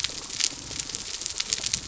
{"label": "biophony", "recorder": "SoundTrap 300"}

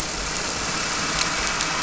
{"label": "anthrophony, boat engine", "recorder": "SoundTrap 300"}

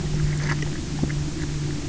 {"label": "anthrophony, boat engine", "recorder": "SoundTrap 300"}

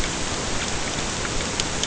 {"label": "ambient", "recorder": "HydroMoth"}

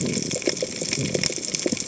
{"label": "biophony", "recorder": "HydroMoth"}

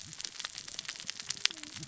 {"label": "biophony, cascading saw", "recorder": "SoundTrap 600 or HydroMoth"}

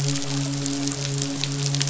{"label": "biophony, midshipman", "recorder": "SoundTrap 500"}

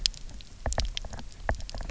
{"label": "biophony, knock", "recorder": "SoundTrap 300"}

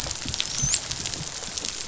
{"label": "biophony, dolphin", "recorder": "SoundTrap 500"}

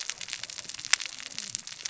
{"label": "biophony, cascading saw", "recorder": "SoundTrap 600 or HydroMoth"}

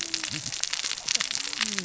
{"label": "biophony, cascading saw", "recorder": "SoundTrap 600 or HydroMoth"}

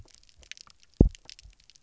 {"label": "biophony, double pulse", "recorder": "SoundTrap 300"}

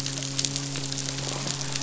{"label": "biophony", "recorder": "SoundTrap 500"}
{"label": "biophony, midshipman", "recorder": "SoundTrap 500"}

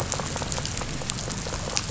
{"label": "biophony", "recorder": "SoundTrap 500"}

